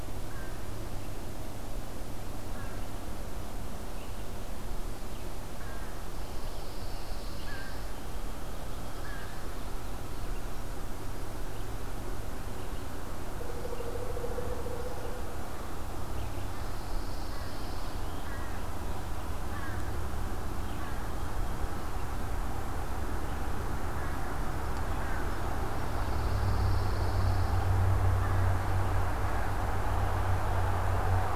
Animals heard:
American Crow (Corvus brachyrhynchos), Pine Warbler (Setophaga pinus)

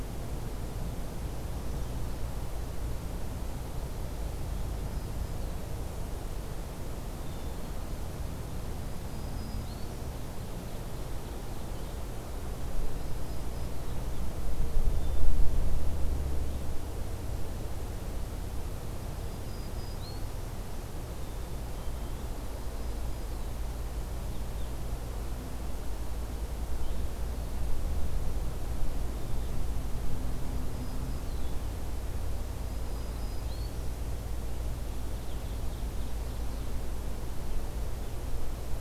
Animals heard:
Black-throated Green Warbler (Setophaga virens), Black-capped Chickadee (Poecile atricapillus), Ovenbird (Seiurus aurocapilla)

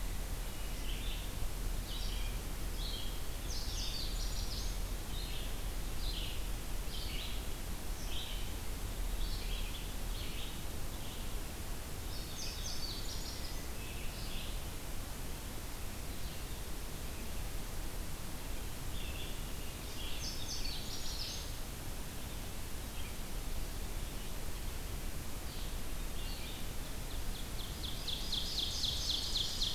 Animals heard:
Hermit Thrush (Catharus guttatus), Ovenbird (Seiurus aurocapilla), Red-eyed Vireo (Vireo olivaceus), Indigo Bunting (Passerina cyanea)

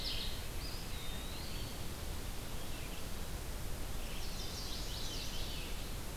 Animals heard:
Veery (Catharus fuscescens), Chestnut-sided Warbler (Setophaga pensylvanica), Eastern Wood-Pewee (Contopus virens), Red-eyed Vireo (Vireo olivaceus)

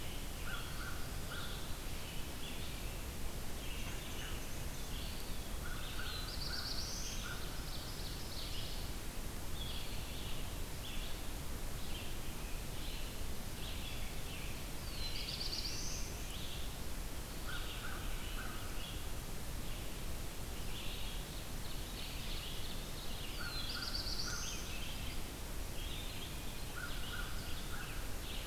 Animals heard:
Black-throated Blue Warbler (Setophaga caerulescens), Red-eyed Vireo (Vireo olivaceus), Eastern Wood-Pewee (Contopus virens), Black-and-white Warbler (Mniotilta varia), American Crow (Corvus brachyrhynchos), Ovenbird (Seiurus aurocapilla)

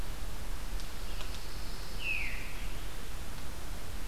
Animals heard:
Pine Warbler (Setophaga pinus), Veery (Catharus fuscescens)

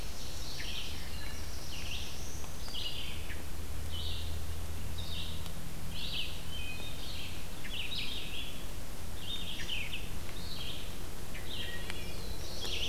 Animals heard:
Black-throated Blue Warbler (Setophaga caerulescens), Red-eyed Vireo (Vireo olivaceus), Ovenbird (Seiurus aurocapilla), Wood Thrush (Hylocichla mustelina)

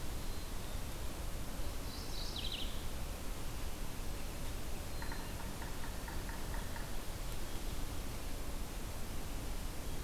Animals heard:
Yellow-bellied Sapsucker (Sphyrapicus varius), Mourning Warbler (Geothlypis philadelphia), Black-capped Chickadee (Poecile atricapillus)

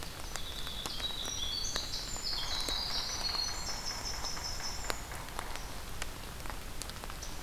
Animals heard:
Pine Warbler (Setophaga pinus), Yellow-bellied Sapsucker (Sphyrapicus varius), Scarlet Tanager (Piranga olivacea), Winter Wren (Troglodytes hiemalis)

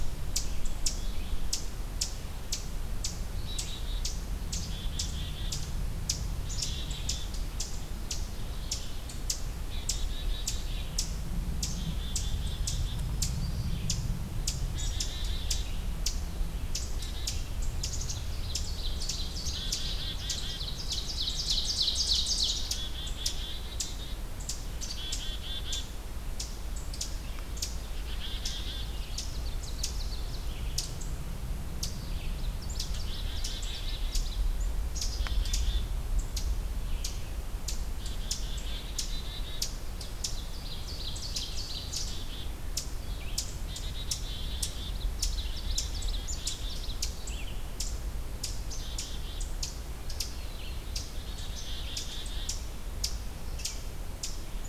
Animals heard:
Black-throated Blue Warbler (Setophaga caerulescens), Ovenbird (Seiurus aurocapilla), Red-eyed Vireo (Vireo olivaceus), Black-capped Chickadee (Poecile atricapillus)

